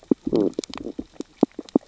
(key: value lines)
label: biophony, stridulation
recorder: SoundTrap 600 or HydroMoth